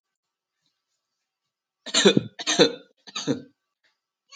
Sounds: Cough